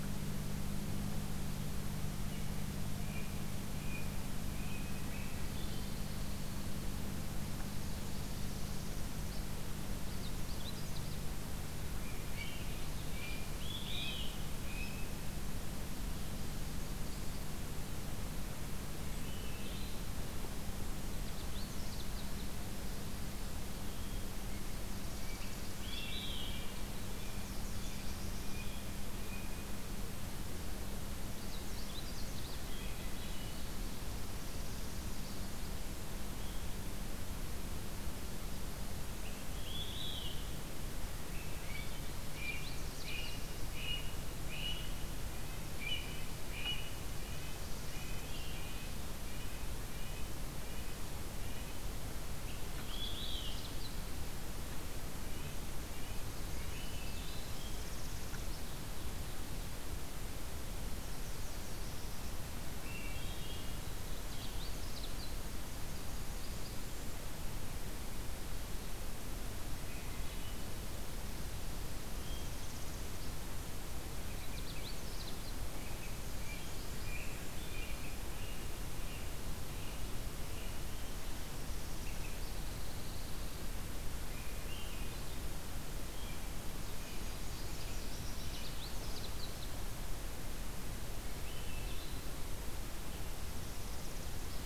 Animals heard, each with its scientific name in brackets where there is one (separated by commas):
Pine Warbler (Setophaga pinus), Blue Jay (Cyanocitta cristata), Olive-sided Flycatcher (Contopus cooperi), Nashville Warbler (Leiothlypis ruficapilla), Northern Parula (Setophaga americana), Black-throated Blue Warbler (Setophaga caerulescens), American Robin (Turdus migratorius), Canada Warbler (Cardellina canadensis), Red-breasted Nuthatch (Sitta canadensis), Swainson's Thrush (Catharus ustulatus)